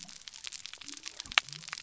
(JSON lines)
{"label": "biophony", "recorder": "SoundTrap 300"}